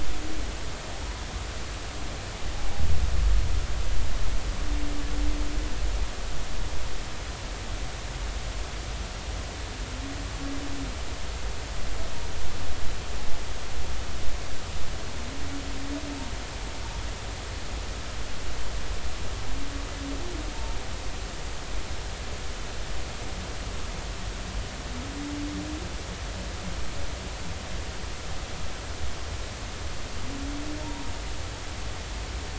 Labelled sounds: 30.8	31.1	humpback whale, 0.83 to 1.0 kHz

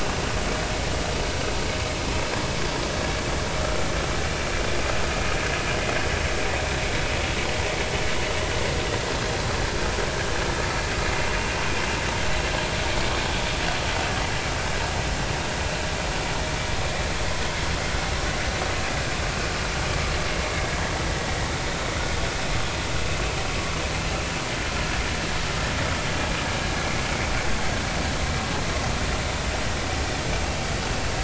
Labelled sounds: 10.6	10.9	vessel noise, 4.4 to 4.6 kHz

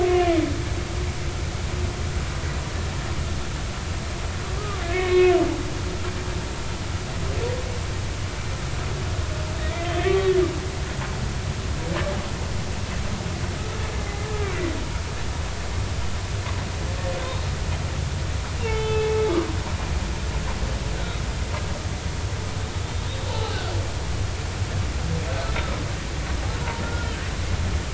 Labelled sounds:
4.6	5.3	humpback whale, 1.0 to 2.7 kHz
9.6	10.4	humpback whale, 1.1 to 2.4 kHz
18.6	19.2	humpback whale, 0.83 to 3.6 kHz
23.3	23.6	humpback whale, 0.80 to 3.0 kHz
26.8	27.2	humpback whale, 1.3 to 1.5 kHz

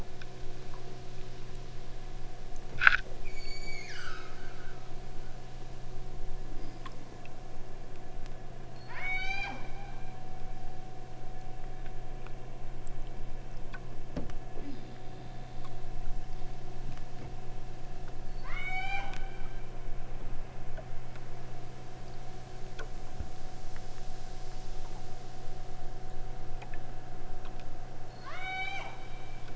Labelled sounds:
3.3	4.8	killer whale, southern Alaska resident, 0.71 to 8.0 kHz
8.7	9.7	killer whale, southern Alaska resident, 0.47 to 8.0 kHz
18.2	19.2	killer whale, southern Alaska resident, 0.54 to 8.0 kHz
28.0	29.5	killer whale, southern Alaska resident, 0.27 to 8.0 kHz

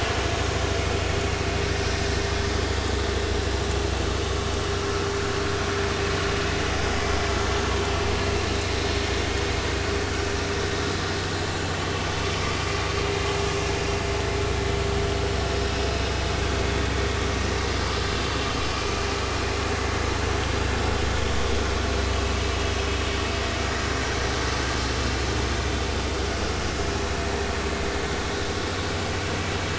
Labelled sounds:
18.7	19.0	vessel noise, 2.3 to 2.6 kHz
23.9	24.2	vessel noise, 5.6 to 5.9 kHz

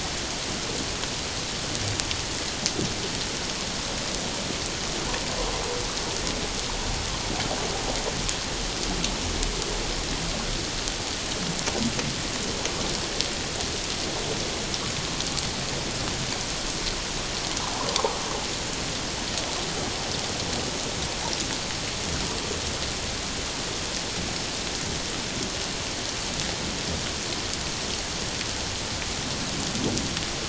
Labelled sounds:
17.9	18.2	water noise, 0.78 to 1.1 kHz

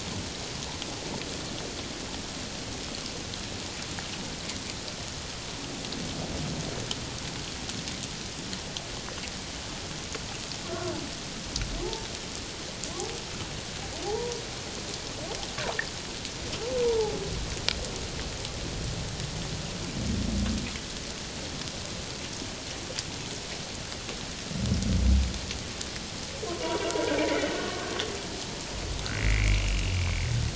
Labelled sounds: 10.7	10.9	humpback whale, 1.3 to 1.5 kHz
11.8	12.1	humpback whale, 0.78 to 0.94 kHz
14.0	14.4	humpback whale, 0.78 to 1.0 kHz
16.8	17.2	humpback whale, 0.78 to 1.0 kHz
26.6	26.9	humpback whale, 0.91 to 1.0 kHz
27.2	27.9	humpback whale, 1.0 to 2.2 kHz
29.2	29.6	humpback whale, 1.9 to 2.5 kHz

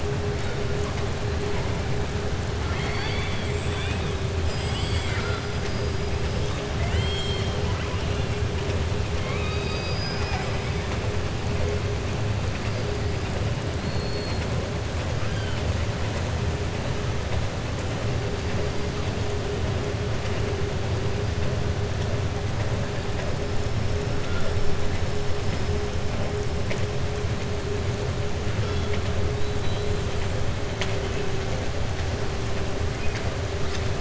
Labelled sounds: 2.6	4.1	killer whale, southern resident, 0.84 to 4.7 kHz
6.7	7.6	killer whale, southern resident, 0.73 to 7.8 kHz
9.1	10.9	killer whale, southern resident, 0.74 to 5.8 kHz
13.8	14.5	killer whale, southern resident, 4.2 to 4.6 kHz

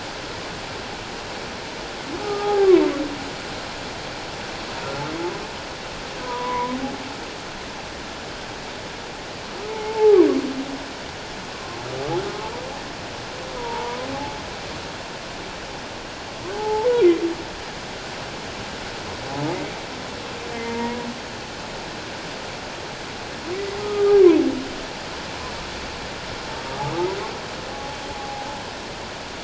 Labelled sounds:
2.2	2.7	humpback whale, 0.78 to 1.3 kHz
6.2	6.8	humpback whale, 0.91 to 1.1 kHz
9.7	10.2	humpback whale, 0.78 to 2.2 kHz
13.6	14.0	humpback whale, 0.84 to 1.0 kHz
16.5	17.0	humpback whale, 0.81 to 1.0 kHz
20.5	21.1	humpback whale, 0.88 to 2.2 kHz
23.8	24.4	humpback whale, 0.94 to 1.3 kHz
27.7	28.5	humpback whale, 0.78 to 0.91 kHz

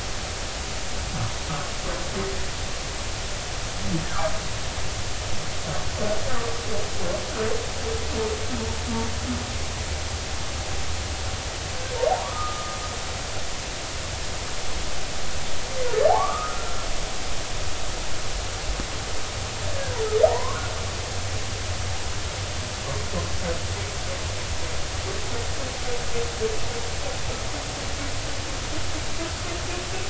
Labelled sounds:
12.1	12.8	humpback whale, 0.80 to 1.4 kHz
16.1	16.9	humpback whale, 0.80 to 1.5 kHz
20.3	20.7	humpback whale, 0.80 to 1.2 kHz

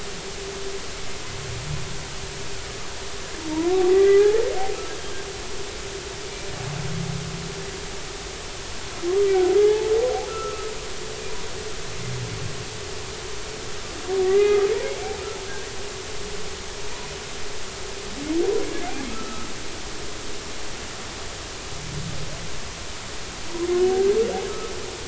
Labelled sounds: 3.9	4.5	humpback whale, 0.80 to 2.0 kHz
9.6	9.9	humpback whale, 0.80 to 0.93 kHz
10.3	10.7	humpback whale, 1.2 to 1.4 kHz
14.2	14.7	humpback whale, 1.1 to 2.1 kHz
19.1	19.5	humpback whale, 1.2 to 1.4 kHz

